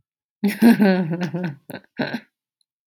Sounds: Laughter